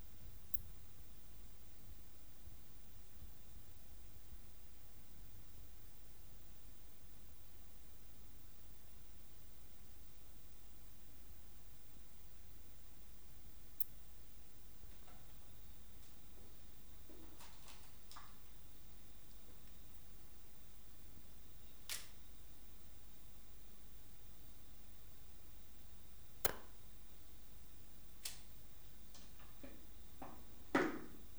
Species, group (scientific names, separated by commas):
Poecilimon ornatus, Orthoptera